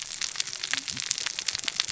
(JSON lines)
{"label": "biophony, cascading saw", "recorder": "SoundTrap 600 or HydroMoth"}